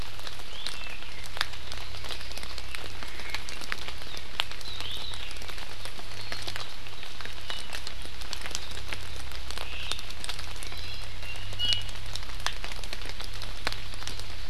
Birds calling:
Iiwi (Drepanis coccinea), Apapane (Himatione sanguinea), Omao (Myadestes obscurus)

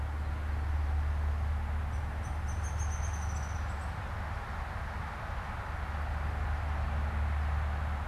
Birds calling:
Downy Woodpecker (Dryobates pubescens)

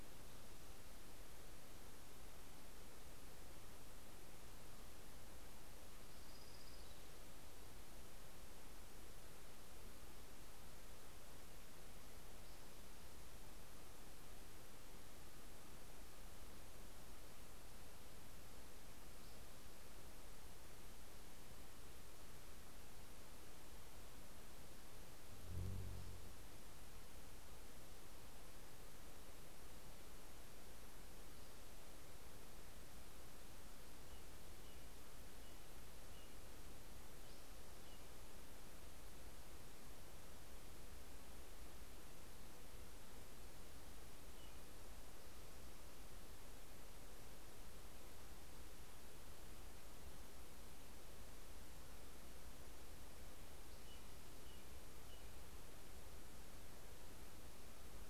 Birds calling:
Orange-crowned Warbler (Leiothlypis celata), American Robin (Turdus migratorius), Spotted Towhee (Pipilo maculatus)

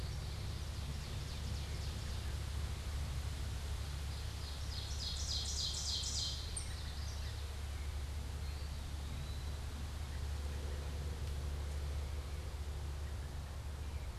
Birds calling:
Eastern Wood-Pewee (Contopus virens), Ovenbird (Seiurus aurocapilla)

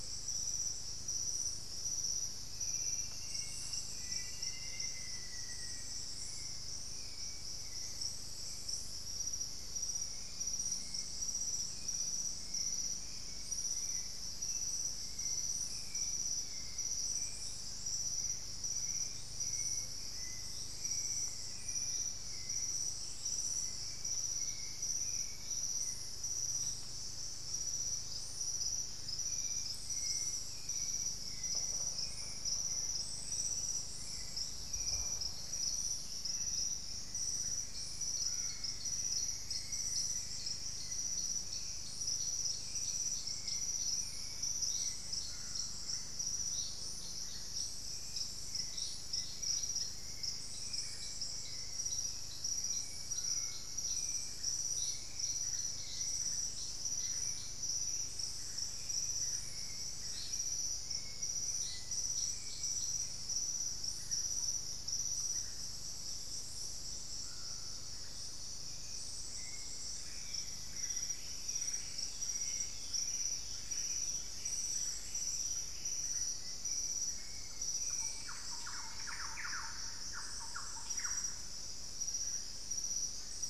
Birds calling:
Buff-breasted Wren (Cantorchilus leucotis), Thrush-like Wren (Campylorhynchus turdinus), Black-faced Antthrush (Formicarius analis), unidentified bird, Hauxwell's Thrush (Turdus hauxwelli)

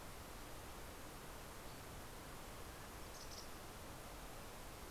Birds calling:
Mountain Chickadee (Poecile gambeli), Mountain Quail (Oreortyx pictus)

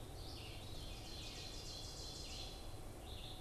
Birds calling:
Red-eyed Vireo (Vireo olivaceus), Ovenbird (Seiurus aurocapilla)

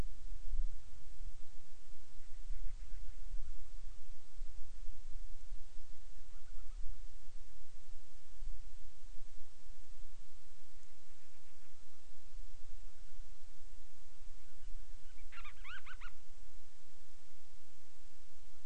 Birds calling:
Band-rumped Storm-Petrel (Hydrobates castro)

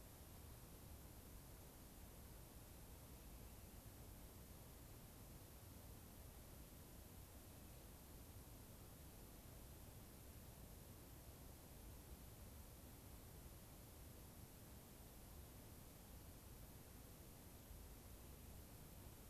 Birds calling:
Rock Wren (Salpinctes obsoletus)

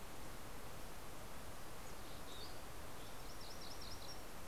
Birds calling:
MacGillivray's Warbler (Geothlypis tolmiei), Mountain Chickadee (Poecile gambeli)

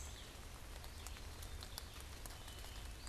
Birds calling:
Black-capped Chickadee (Poecile atricapillus), Red-eyed Vireo (Vireo olivaceus)

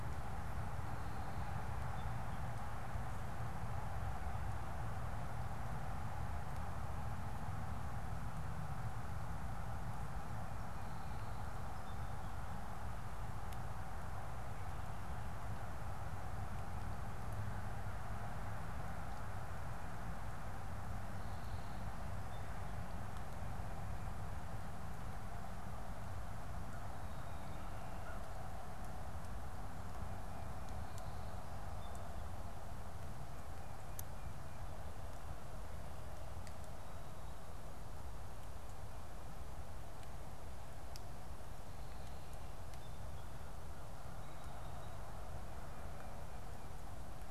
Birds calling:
American Crow (Corvus brachyrhynchos), Song Sparrow (Melospiza melodia)

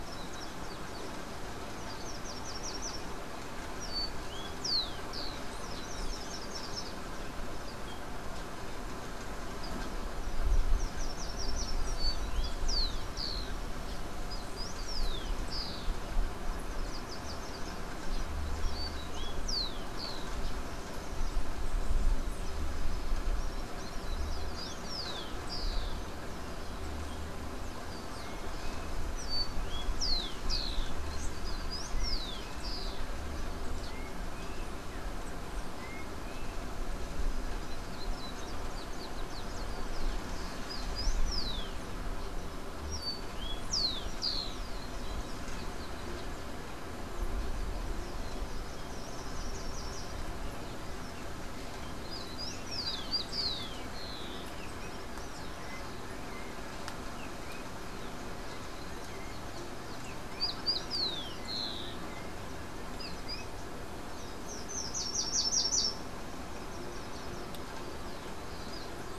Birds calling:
Yellow-backed Oriole (Icterus chrysater), Common Tody-Flycatcher (Todirostrum cinereum), Rufous-collared Sparrow (Zonotrichia capensis), Slate-throated Redstart (Myioborus miniatus)

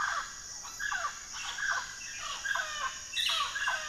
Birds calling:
Mealy Parrot (Amazona farinosa)

